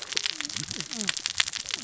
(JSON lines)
{"label": "biophony, cascading saw", "recorder": "SoundTrap 600 or HydroMoth"}